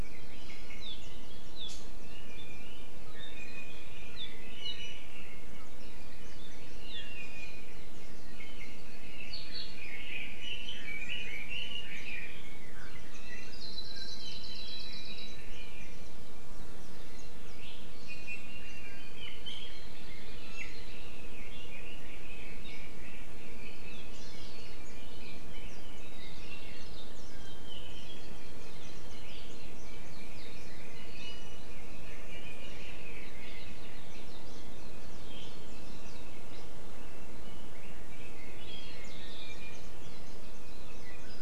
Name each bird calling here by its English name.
Iiwi, Red-billed Leiothrix, Hawaii Amakihi